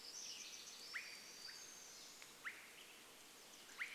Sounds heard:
warbler song, unidentified sound, Swainson's Thrush call

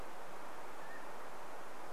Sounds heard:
Mountain Quail call

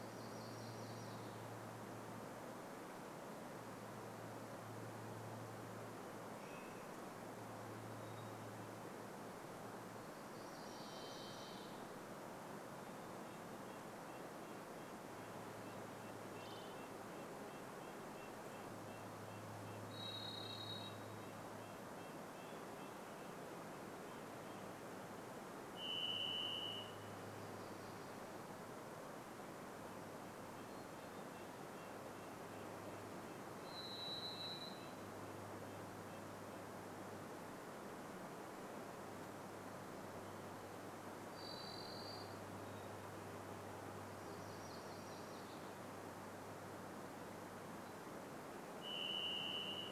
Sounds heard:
MacGillivray's Warbler song, unidentified sound, Varied Thrush call, Varied Thrush song, Hermit Thrush song, Red-breasted Nuthatch song

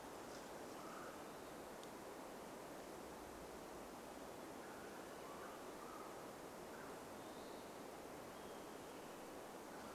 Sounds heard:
Olive-sided Flycatcher song, Mountain Quail call, unidentified sound, Western Wood-Pewee song

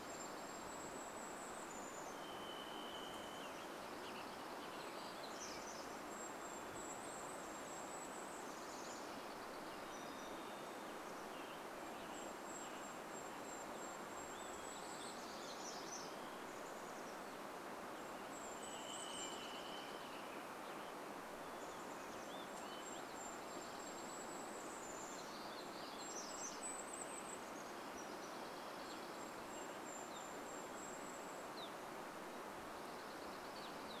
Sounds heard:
Chestnut-backed Chickadee call, Western Wood-Pewee call, Western Tanager song, Golden-crowned Kinglet song, Evening Grosbeak call, Dark-eyed Junco song, Varied Thrush song, warbler song

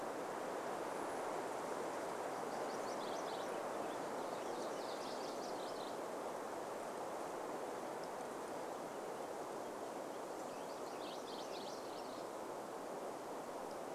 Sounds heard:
MacGillivray's Warbler song, Purple Finch song

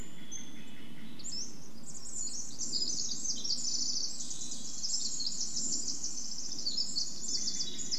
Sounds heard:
Hermit Thrush song, Pacific-slope Flycatcher song, Red-breasted Nuthatch song, Brown Creeper call, Pacific Wren song, Steller's Jay call

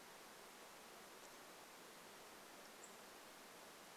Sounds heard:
unidentified bird chip note

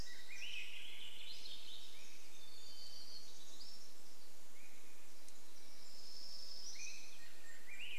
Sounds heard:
Swainson's Thrush song, Golden-crowned Kinglet song, Swainson's Thrush call, Black-capped Chickadee song, warbler song

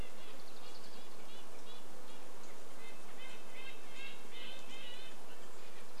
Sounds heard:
Red-breasted Nuthatch call, insect buzz, unidentified sound, Red-breasted Nuthatch song

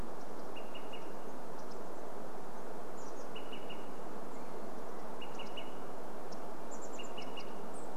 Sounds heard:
Chestnut-backed Chickadee call, unidentified bird chip note, Olive-sided Flycatcher call

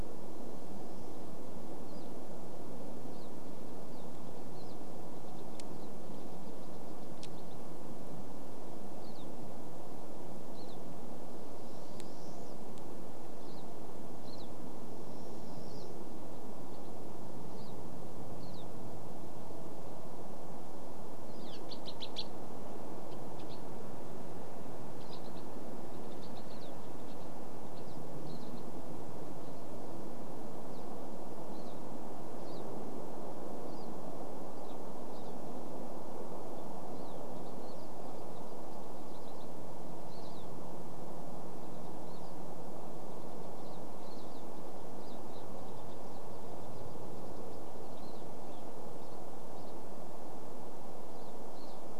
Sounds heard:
Pine Siskin song, Pine Siskin call

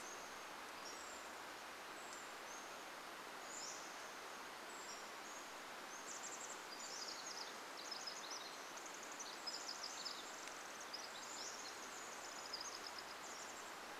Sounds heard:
Pacific Wren song, Brown Creeper call, Pacific-slope Flycatcher song, Chestnut-backed Chickadee call

